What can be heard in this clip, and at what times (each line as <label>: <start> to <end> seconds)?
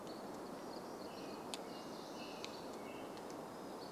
American Robin song: 0 to 4 seconds
Hammond's Flycatcher call: 0 to 4 seconds
warbler song: 0 to 4 seconds